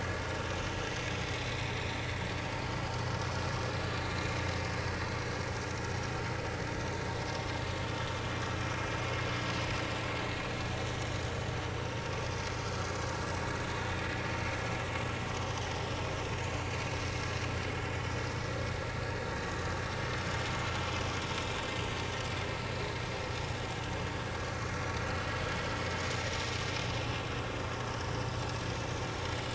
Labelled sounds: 2.9	3.2	vessel noise, 4.4 to 4.6 kHz
3.7	4.3	vessel noise, 3.9 to 4.2 kHz
13.9	14.1	vessel noise, 3.6 to 3.7 kHz
16.5	16.8	vessel noise, 4.5 to 4.7 kHz
22.7	23.0	vessel noise, 3.9 to 4.4 kHz

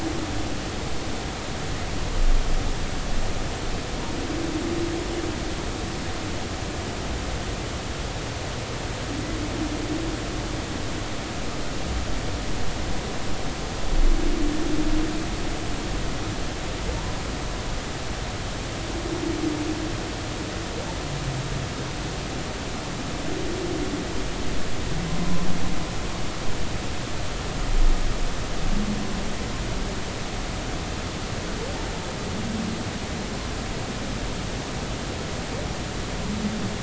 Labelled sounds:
25.2	25.5	humpback whale, 0.96 to 1.1 kHz

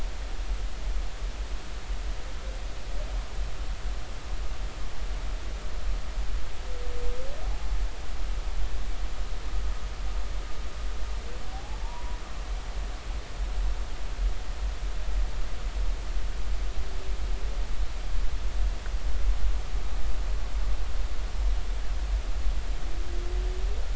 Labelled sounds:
7.4	7.7	humpback whale, 0.80 to 0.90 kHz
11.5	12.2	humpback whale, 0.80 to 1.0 kHz

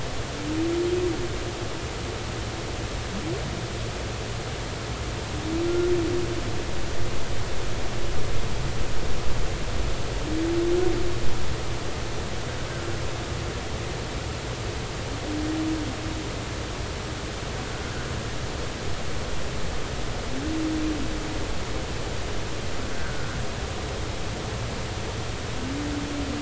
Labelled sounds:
5.7	5.9	humpback whale, 1.3 to 1.4 kHz
17.7	17.9	humpback whale, 1.4 to 1.5 kHz
22.9	23.4	humpback whale, 1.3 to 1.6 kHz

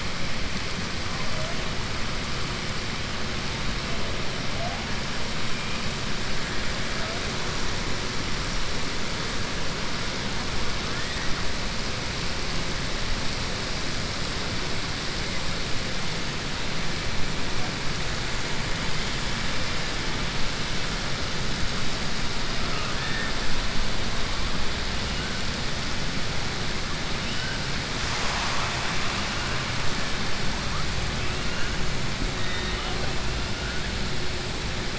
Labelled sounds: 22.6	23.3	killer whale, southern resident, 0.71 to 2.9 kHz
32.3	32.9	killer whale, southern resident, 1.2 to 4.1 kHz

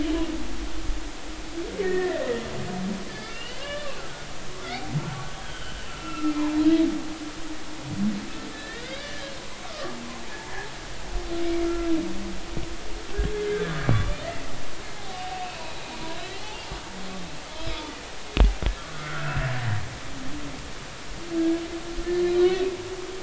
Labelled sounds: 1.8	2.3	humpback whale, 1.6 to 2.0 kHz
3.1	3.9	humpback whale, 0.93 to 3.6 kHz
5.1	6.3	humpback whale, 1.2 to 3.3 kHz
8.5	10.0	humpback whale, 1.0 to 3.8 kHz
11.4	11.9	humpback whale, 1.3 to 2.4 kHz
13.5	14.2	humpback whale, 1.1 to 1.8 kHz
15.0	15.6	humpback whale, 0.80 to 2.8 kHz
18.9	19.7	humpback whale, 1.3 to 2.7 kHz
22.3	22.6	humpback whale, 1.4 to 1.6 kHz

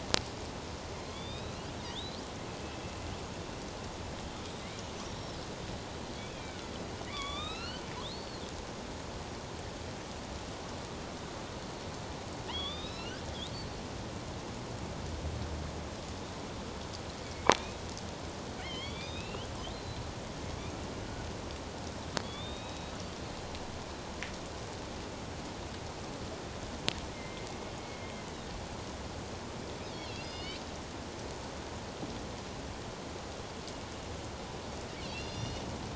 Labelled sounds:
1.1	1.6	killer whale, northern resident, A clan, AB subclan, 2.4 to 5.1 kHz
1.9	2.2	killer whale, northern resident, A clan, AB subclan, 3.2 to 4.3 kHz
5.0	5.4	killer whale, northern resident, A clan, AB subclan, 4.9 to 5.8 kHz
6.1	6.7	killer whale, northern resident, A clan, AB subclan, 2.0 to 3.5 kHz
7.1	7.8	killer whale, northern resident, A clan, AB subclan, 1.0 to 5.5 kHz
8.1	8.4	killer whale, northern resident, A clan, AB subclan, 4.1 to 4.5 kHz
12.5	13.3	killer whale, northern resident, A clan, AB subclan, 1.1 to 5.5 kHz
17.2	17.8	killer whale, northern resident, A clan, AB subclan, 2.1 to 2.6 kHz
18.6	20.0	killer whale, northern resident, A clan, AB subclan, 1.8 to 4.2 kHz
22.2	23.0	killer whale, northern resident, A clan, AB subclan, 2.4 to 3.9 kHz
27.1	27.5	killer whale, northern resident, A clan, AB subclan, 2.0 to 2.2 kHz
29.9	30.6	killer whale, northern resident, A clan, AB subclan, 2.1 to 5.3 kHz
35.0	35.6	killer whale, northern resident, A clan, AB subclan, 2.5 to 5.8 kHz

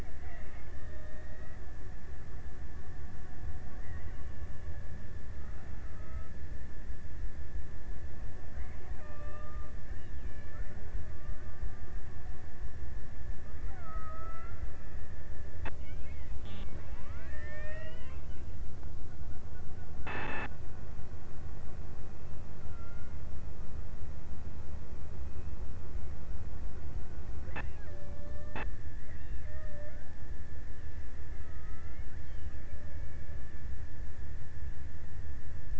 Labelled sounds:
0.0	2.2	killer whale, Bigg's (transient), 0.28 to 2.9 kHz
5.5	6.4	killer whale, Bigg's (transient), 0.42 to 2.2 kHz
8.4	9.9	killer whale, Bigg's (transient), 0.22 to 2.1 kHz
13.4	14.9	killer whale, Bigg's (transient), 0.43 to 2.5 kHz
16.5	18.9	killer whale, Bigg's (transient), 0.40 to 2.8 kHz
22.3	23.9	killer whale, Bigg's (transient), 1.1 to 1.7 kHz
27.5	29.4	killer whale, Bigg's (transient), 0.43 to 2.1 kHz
31.4	34.2	killer whale, Bigg's (transient), 0.40 to 2.6 kHz

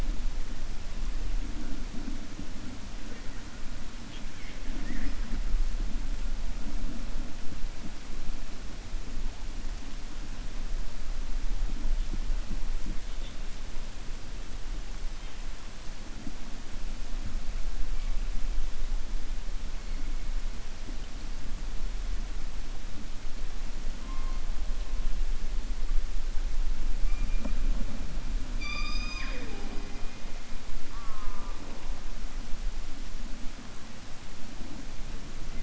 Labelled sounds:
28.5	30.0	killer whale, 0.29 to 7.0 kHz

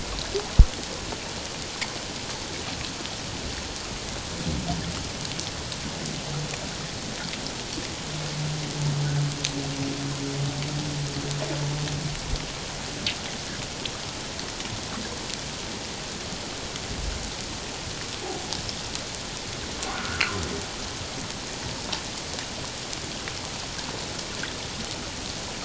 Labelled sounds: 19.9	20.2	humpback whale, 1.2 to 1.7 kHz

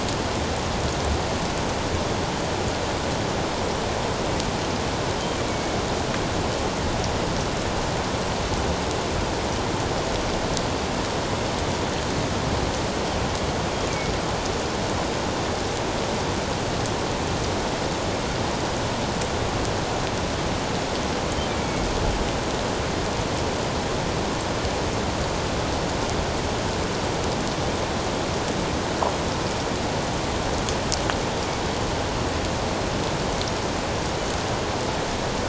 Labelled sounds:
5.5	5.8	killer whale, northern resident, G clan, 2.2 to 2.3 kHz
21.6	21.9	killer whale, northern resident, G clan, 2.1 to 2.3 kHz

